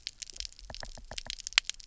{"label": "biophony, knock", "recorder": "SoundTrap 300"}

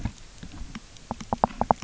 {"label": "biophony, knock", "recorder": "SoundTrap 300"}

